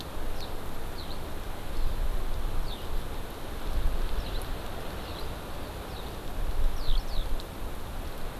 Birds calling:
Eurasian Skylark (Alauda arvensis), Hawaii Amakihi (Chlorodrepanis virens)

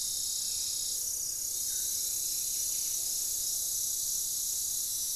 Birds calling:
Buff-breasted Wren (Cantorchilus leucotis), Plumbeous Pigeon (Patagioenas plumbea), unidentified bird

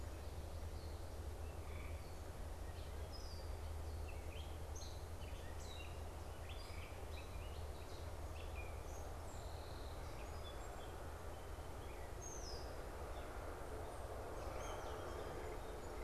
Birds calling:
Red-winged Blackbird (Agelaius phoeniceus), Gray Catbird (Dumetella carolinensis), Song Sparrow (Melospiza melodia)

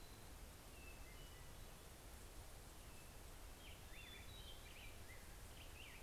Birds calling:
Hermit Thrush (Catharus guttatus), Black-headed Grosbeak (Pheucticus melanocephalus)

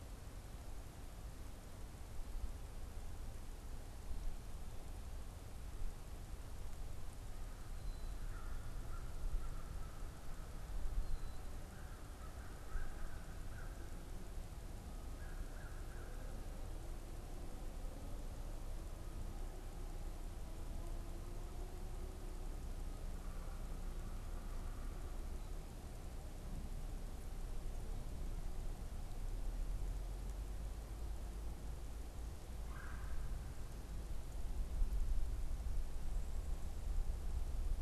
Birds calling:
American Crow (Corvus brachyrhynchos), Red-bellied Woodpecker (Melanerpes carolinus), unidentified bird

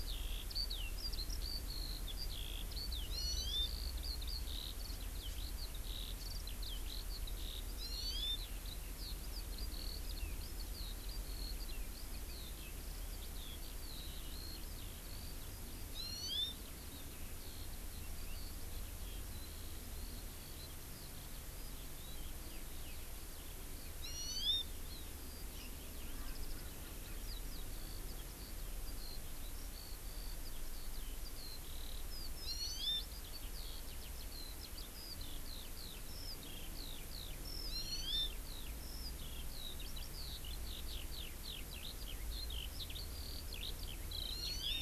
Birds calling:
Hawaii Amakihi (Chlorodrepanis virens), Eurasian Skylark (Alauda arvensis)

